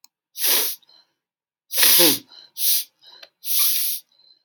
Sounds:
Sniff